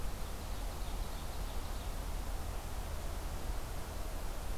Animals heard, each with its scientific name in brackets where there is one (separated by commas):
Ovenbird (Seiurus aurocapilla)